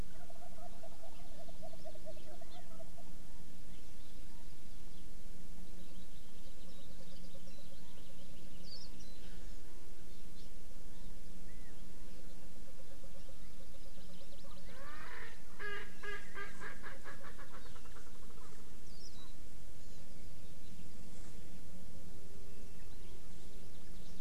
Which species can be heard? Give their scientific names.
Meleagris gallopavo, Chlorodrepanis virens, Zosterops japonicus, Pternistis erckelii